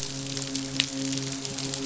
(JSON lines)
{"label": "biophony, midshipman", "recorder": "SoundTrap 500"}